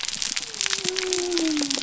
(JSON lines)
{"label": "biophony", "recorder": "SoundTrap 300"}